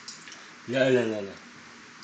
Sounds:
Sigh